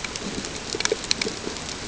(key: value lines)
label: ambient
recorder: HydroMoth